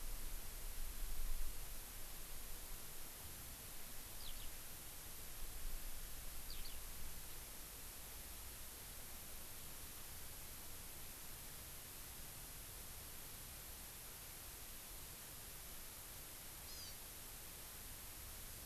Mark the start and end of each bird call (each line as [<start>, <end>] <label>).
[4.16, 4.46] Eurasian Skylark (Alauda arvensis)
[6.46, 6.76] Eurasian Skylark (Alauda arvensis)
[16.66, 16.96] Hawaii Amakihi (Chlorodrepanis virens)